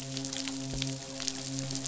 {"label": "biophony, midshipman", "recorder": "SoundTrap 500"}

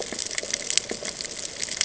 {"label": "ambient", "recorder": "HydroMoth"}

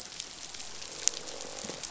{"label": "biophony, croak", "recorder": "SoundTrap 500"}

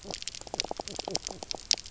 {"label": "biophony, knock croak", "recorder": "SoundTrap 300"}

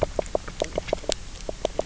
{"label": "biophony, knock croak", "recorder": "SoundTrap 300"}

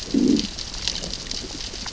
{"label": "biophony, growl", "recorder": "SoundTrap 600 or HydroMoth"}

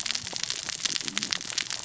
{"label": "biophony, cascading saw", "recorder": "SoundTrap 600 or HydroMoth"}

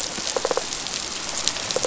{"label": "biophony", "recorder": "SoundTrap 500"}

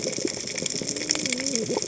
{"label": "biophony, cascading saw", "recorder": "HydroMoth"}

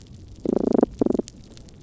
{"label": "biophony", "recorder": "SoundTrap 300"}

